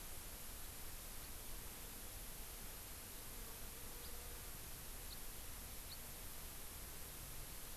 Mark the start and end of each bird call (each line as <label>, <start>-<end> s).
House Finch (Haemorhous mexicanus), 4.0-4.1 s
House Finch (Haemorhous mexicanus), 5.1-5.2 s
House Finch (Haemorhous mexicanus), 5.8-6.0 s